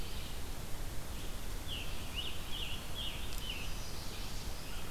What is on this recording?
Red-eyed Vireo, Scarlet Tanager, Chestnut-sided Warbler